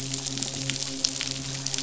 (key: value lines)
label: biophony, midshipman
recorder: SoundTrap 500